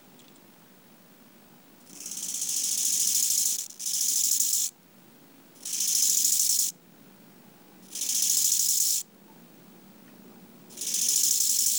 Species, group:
Chorthippus biguttulus
Orthoptera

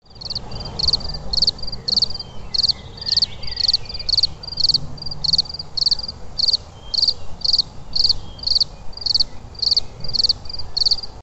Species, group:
Gryllus campestris
Orthoptera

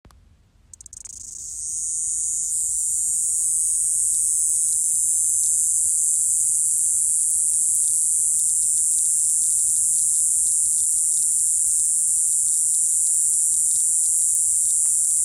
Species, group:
Diceroprocta eugraphica
Cicadidae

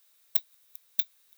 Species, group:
Leptophyes laticauda
Orthoptera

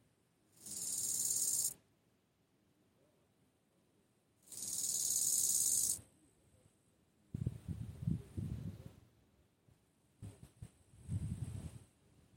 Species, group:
Chorthippus biguttulus
Orthoptera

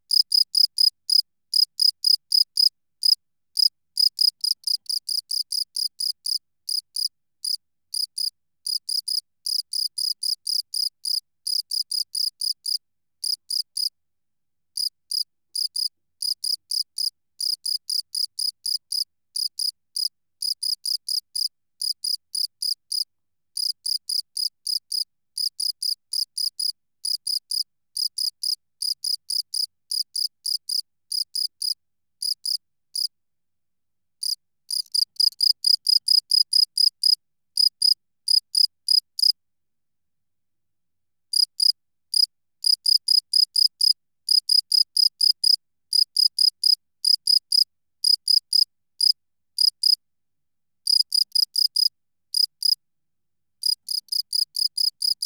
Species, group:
Gryllus campestris
Orthoptera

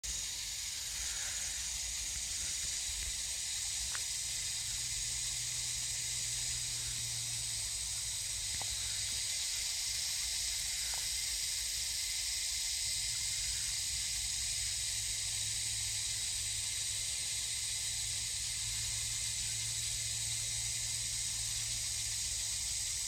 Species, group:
Psaltoda harrisii
Cicadidae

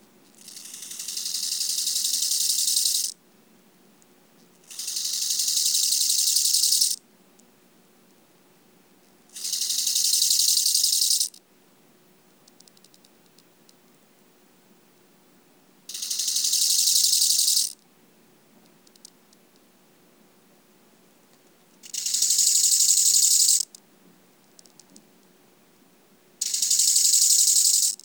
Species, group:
Chorthippus biguttulus
Orthoptera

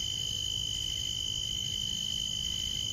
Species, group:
Oecanthus latipennis
Orthoptera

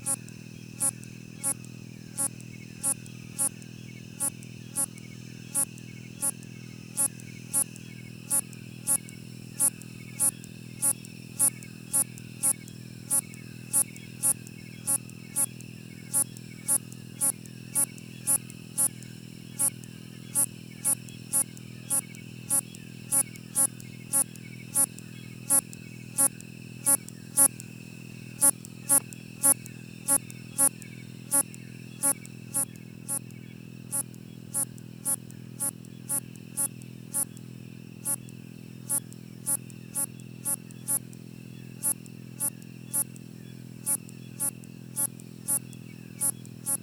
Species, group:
Hexacentrus unicolor
Orthoptera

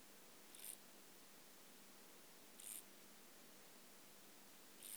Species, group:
Chorthippus brunneus
Orthoptera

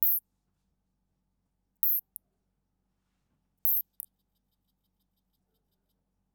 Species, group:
Isophya rhodopensis
Orthoptera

